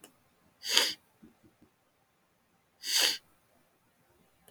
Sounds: Sniff